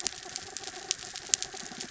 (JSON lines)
{"label": "anthrophony, mechanical", "recorder": "SoundTrap 300"}